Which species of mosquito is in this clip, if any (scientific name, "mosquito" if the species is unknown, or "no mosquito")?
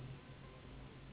Anopheles gambiae s.s.